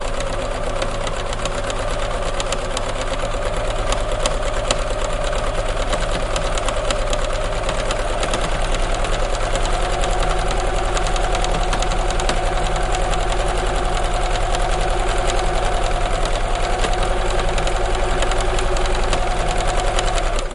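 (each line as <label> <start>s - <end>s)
A sewing machine needle stitching through fabric, accelerating. 0.0s - 20.5s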